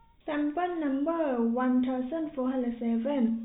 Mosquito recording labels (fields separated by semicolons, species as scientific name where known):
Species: no mosquito; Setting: cup